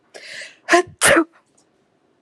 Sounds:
Sneeze